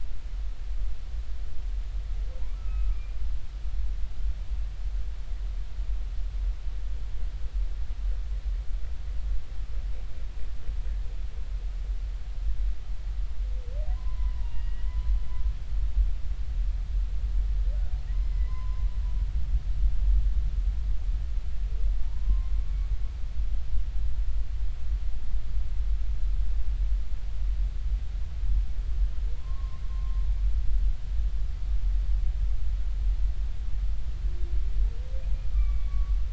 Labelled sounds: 2.5	3.0	humpback whale, 1.1 to 2.6 kHz
13.9	15.1	humpback whale, 0.86 to 2.9 kHz
18.1	18.9	humpback whale, 0.96 to 2.1 kHz
22.0	22.5	humpback whale, 0.86 to 1.1 kHz
29.4	30.2	humpback whale, 0.90 to 1.2 kHz
35.5	36.2	humpback whale, 1.1 to 2.4 kHz

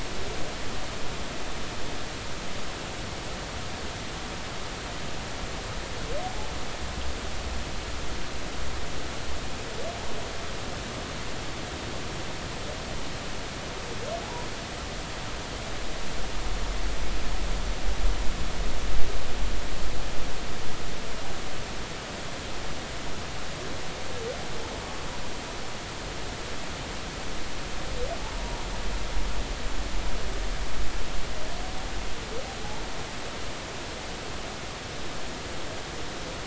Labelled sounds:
28.3	28.6	humpback whale, 0.93 to 1.0 kHz

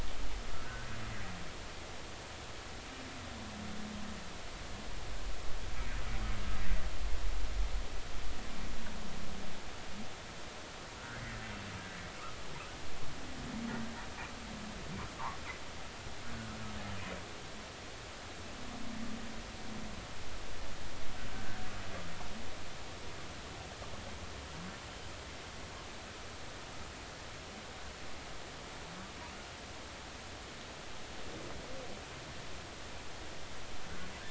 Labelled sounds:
11.1	11.4	humpback whale, 1.7 to 2.1 kHz
21.3	21.6	humpback whale, 1.5 to 1.6 kHz

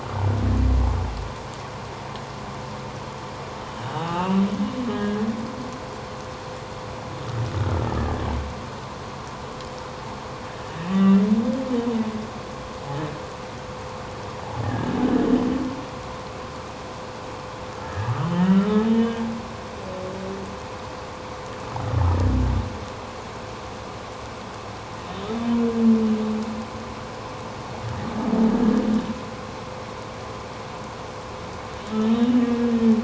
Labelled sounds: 3.9	5.2	humpback whale, 0.78 to 2.9 kHz
10.9	11.2	humpback whale, 1.1 to 1.2 kHz
14.6	14.9	humpback whale, 1.6 to 1.9 kHz
17.8	19.2	humpback whale, 1.3 to 3.2 kHz
32.2	32.5	humpback whale, 2.8 to 3.1 kHz

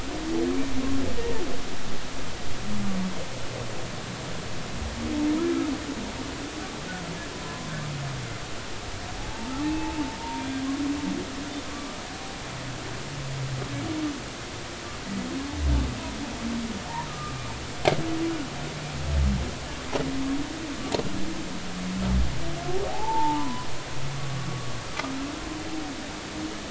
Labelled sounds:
7.4	7.7	humpback whale, 0.93 to 1.1 kHz
9.2	10.4	humpback whale, 0.80 to 0.99 kHz
11.7	12.0	humpback whale, 1.1 to 1.3 kHz
17.1	17.4	humpback whale, 1.2 to 1.3 kHz
22.9	24.5	humpback whale, 0.80 to 1.2 kHz

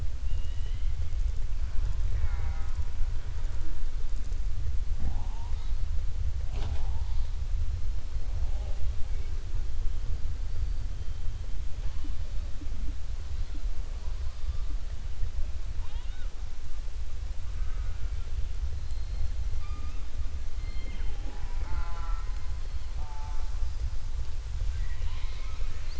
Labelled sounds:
0.2	0.9	killer whale, southern resident, 1.9 to 4.1 kHz

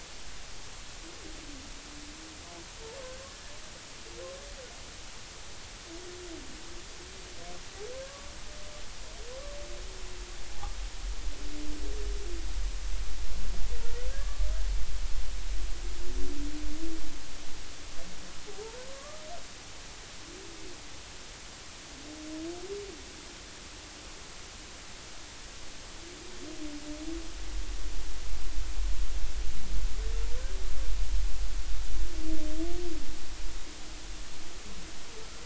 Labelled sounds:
3.0	3.3	humpback whale, 1.5 to 1.7 kHz
8.0	8.3	humpback whale, 1.1 to 1.2 kHz
14.1	14.4	humpback whale, 1.1 to 1.8 kHz
18.5	19.2	humpback whale, 0.80 to 1.3 kHz

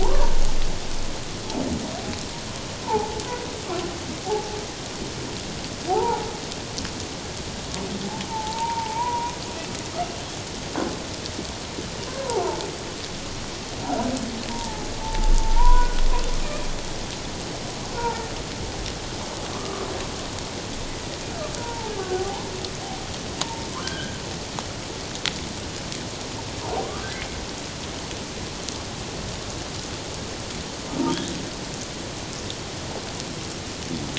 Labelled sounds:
0.0	0.4	humpback whale, 0.78 to 1.2 kHz
2.8	3.2	humpback whale, 0.78 to 1.0 kHz
4.2	4.6	humpback whale, 0.78 to 0.94 kHz
5.9	6.3	humpback whale, 0.78 to 1.0 kHz
8.3	9.3	humpback whale, 0.81 to 1.0 kHz
14.5	16.0	humpback whale, 0.81 to 1.5 kHz
17.9	18.3	humpback whale, 0.84 to 1.6 kHz
19.5	19.9	humpback whale, 1.0 to 1.3 kHz
21.6	22.5	humpback whale, 0.78 to 1.1 kHz
23.4	24.2	humpback whale, 0.84 to 3.3 kHz
26.8	27.1	humpback whale, 0.97 to 1.3 kHz

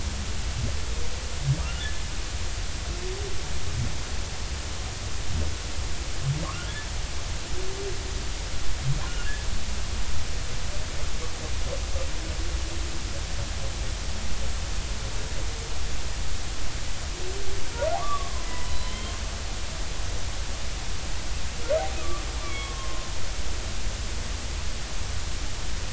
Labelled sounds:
1.6	1.8	humpback whale, 1.1 to 1.5 kHz
6.4	6.7	humpback whale, 1.0 to 1.5 kHz
9.1	9.3	humpback whale, 2.7 to 2.9 kHz
18.0	19.1	humpback whale, 0.96 to 4.1 kHz
22.0	23.1	humpback whale, 0.99 to 3.4 kHz

